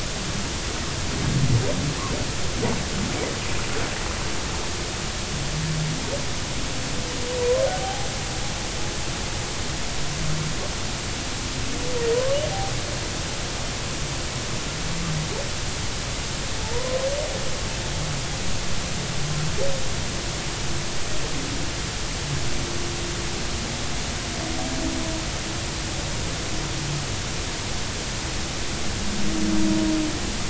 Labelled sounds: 7.8	8.1	humpback whale, 0.80 to 0.86 kHz
16.6	17.0	humpback whale, 0.83 to 1.1 kHz

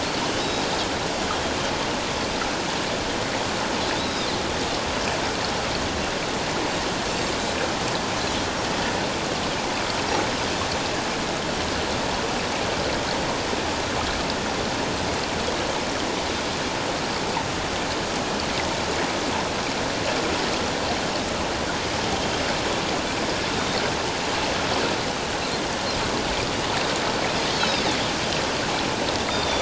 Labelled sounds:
0.4	0.6	Pacific white-sided dolphin, 3.6 to 3.9 kHz
4.0	4.3	Pacific white-sided dolphin, 3.5 to 5.2 kHz
27.6	27.9	Pacific white-sided dolphin, 3.3 to 4.1 kHz

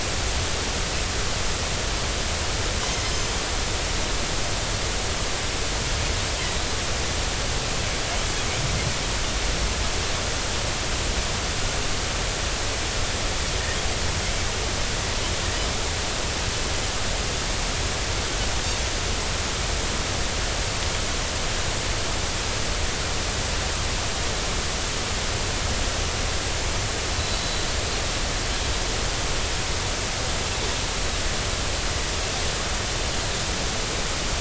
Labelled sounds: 2.8	3.1	Pacific white-sided dolphin, 2.0 to 2.1 kHz
27.2	27.7	Pacific white-sided dolphin, 3.9 to 4.1 kHz

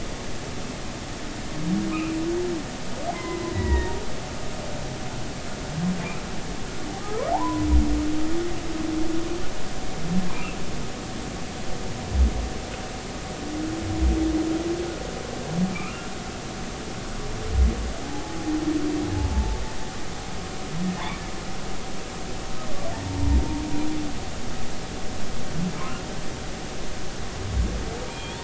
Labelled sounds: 2.9	4.0	humpback whale, 0.90 to 2.7 kHz
7.0	7.7	humpback whale, 0.80 to 1.3 kHz
15.7	16.1	humpback whale, 1.2 to 2.8 kHz
18.0	18.5	humpback whale, 0.80 to 0.90 kHz
19.2	19.6	humpback whale, 0.83 to 0.99 kHz
23.0	23.4	humpback whale, 0.86 to 1.0 kHz
28.1	28.4	humpback whale, 2.3 to 3.6 kHz

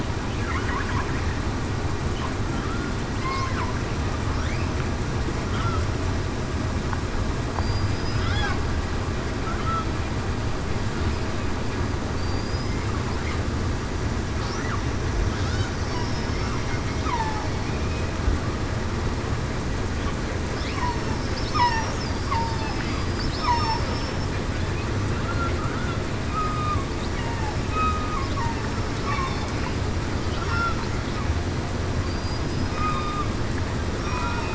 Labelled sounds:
3.2	3.5	killer whale, southern resident, 0.96 to 1.1 kHz
7.6	8.3	killer whale, southern resident, 4.7 to 5.1 kHz
12.2	12.7	killer whale, southern resident, 4.6 to 5.1 kHz
15.9	16.5	killer whale, southern resident, 5.4 to 5.6 kHz
17.0	17.5	killer whale, southern resident, 0.82 to 1.3 kHz
21.5	21.9	killer whale, southern resident, 0.84 to 1.3 kHz
22.4	22.8	killer whale, southern resident, 4.9 to 5.2 kHz
23.4	23.8	killer whale, southern resident, 5.2 to 5.5 kHz
26.3	26.8	killer whale, southern resident, 1.1 to 1.3 kHz
27.7	28.0	killer whale, southern resident, 2.5 to 2.6 kHz
32.0	32.4	killer whale, southern resident, 4.6 to 4.9 kHz
32.7	33.3	killer whale, southern resident, 1.1 to 1.3 kHz
34.0	34.4	killer whale, southern resident, 2.46 to 2.53 kHz

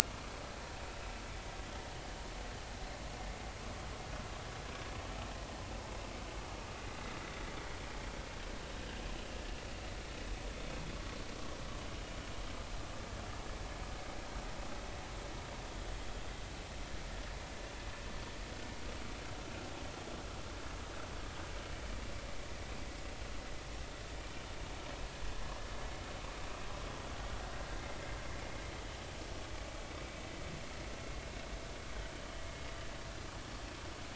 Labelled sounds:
10.9	11.2	vessel noise, 1.1 to 1.2 kHz
27.7	28.0	vessel noise, 2.0 to 2.2 kHz

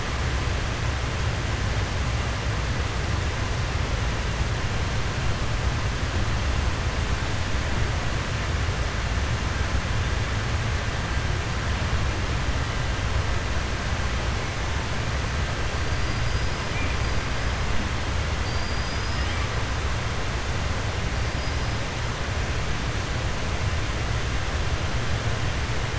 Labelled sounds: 15.9	16.6	killer whale, 4.7 to 5.1 kHz
18.4	19.3	killer whale, 4.6 to 5.2 kHz

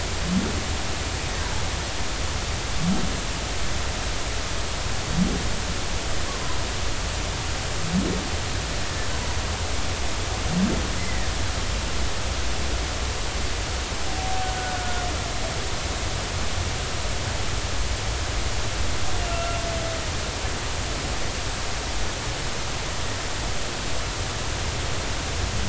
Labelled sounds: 11.0	11.3	humpback whale, 1.8 to 2.1 kHz
14.8	15.0	humpback whale, 1.4 to 1.5 kHz
19.2	19.6	humpback whale, 1.3 to 2.8 kHz

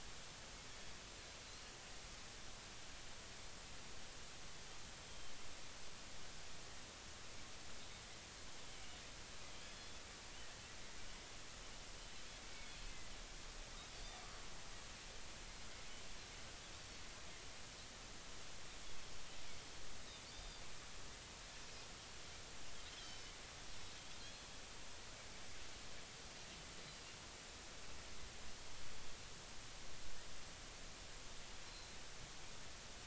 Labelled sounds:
1.5	1.8	Pacific white-sided dolphin, 4.0 to 4.4 kHz
9.6	10.0	Pacific white-sided dolphin, 3.3 to 3.6 kHz
12.7	12.9	Pacific white-sided dolphin, 4.2 to 4.4 kHz
20.3	20.6	Pacific white-sided dolphin, 3.5 to 4.9 kHz
22.9	23.3	Pacific white-sided dolphin, 3.0 to 5.5 kHz
31.7	32.0	Pacific white-sided dolphin, 4.0 to 4.2 kHz

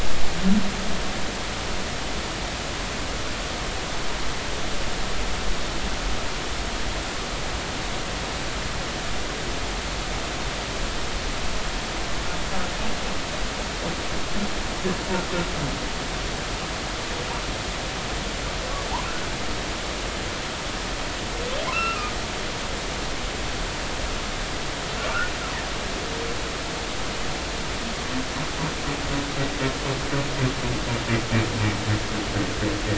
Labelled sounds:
21.7	22.1	humpback whale, 1.2 to 2.8 kHz

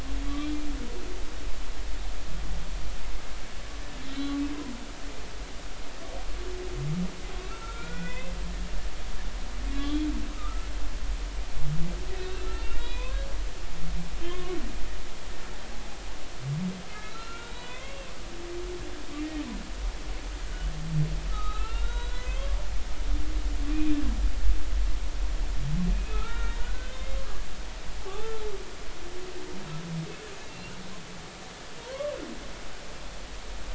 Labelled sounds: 0.3	0.7	humpback whale, 2.3 to 3.4 kHz
4.1	4.4	humpback whale, 3.0 to 4.0 kHz
7.4	8.3	humpback whale, 1.2 to 3.9 kHz
9.7	10.7	humpback whale, 1.1 to 3.6 kHz
12.1	13.2	humpback whale, 0.93 to 4.0 kHz
14.2	14.6	humpback whale, 0.99 to 3.3 kHz
16.9	18.1	humpback whale, 0.96 to 4.2 kHz
21.3	22.5	humpback whale, 1.2 to 4.3 kHz
25.9	27.2	humpback whale, 1.2 to 3.7 kHz
28.0	28.3	humpback whale, 0.80 to 0.93 kHz
30.5	30.7	humpback whale, 2.7 to 2.9 kHz

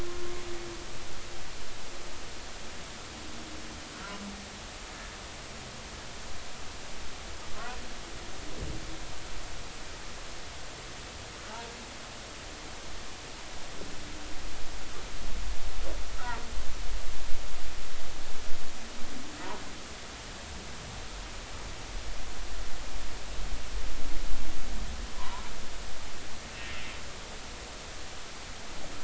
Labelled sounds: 0.0	0.3	humpback whale, 1.0 to 1.1 kHz
25.1	25.4	humpback whale, 0.90 to 1.2 kHz

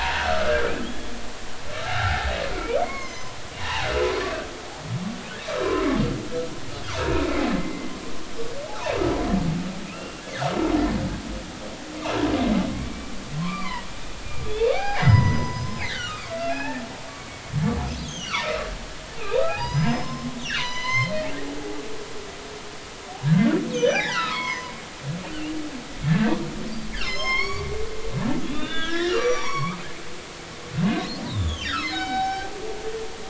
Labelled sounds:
0.3	1.1	humpback whale, 0.80 to 1.5 kHz
1.8	3.9	humpback whale, 0.80 to 6.6 kHz
7.6	8.9	humpback whale, 0.80 to 2.2 kHz
9.8	10.2	humpback whale, 2.4 to 2.8 kHz
12.7	13.9	humpback whale, 0.90 to 2.6 kHz
14.5	17.4	humpback whale, 0.80 to 6.2 kHz
18.1	18.7	humpback whale, 1.1 to 6.0 kHz
19.2	21.1	humpback whale, 0.80 to 6.4 kHz
21.6	21.8	humpback whale, 0.80 to 0.93 kHz
23.2	25.0	humpback whale, 0.80 to 6.6 kHz
26.0	26.3	humpback whale, 1.5 to 1.9 kHz
27.0	27.7	humpback whale, 0.99 to 5.7 kHz
28.4	29.8	humpback whale, 0.80 to 5.9 kHz
31.3	32.5	humpback whale, 0.80 to 5.5 kHz

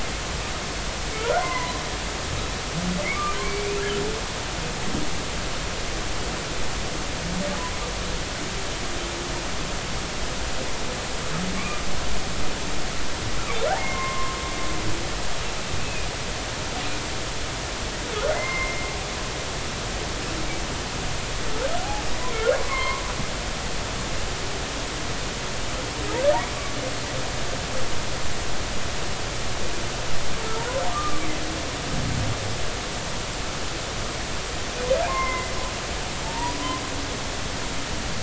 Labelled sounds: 1.2	1.8	humpback whale, 0.93 to 2.1 kHz
3.1	3.7	humpback whale, 1.1 to 2.4 kHz
11.5	11.8	humpback whale, 1.0 to 2.5 kHz
13.8	14.4	humpback whale, 0.90 to 2.2 kHz
15.8	16.1	humpback whale, 2.4 to 2.7 kHz
18.3	18.9	humpback whale, 0.99 to 2.2 kHz
22.3	23.0	humpback whale, 0.96 to 2.3 kHz
30.9	31.2	humpback whale, 1.1 to 1.3 kHz
35.0	35.5	humpback whale, 0.80 to 2.2 kHz
37.2	37.6	humpback whale, 0.83 to 1.0 kHz

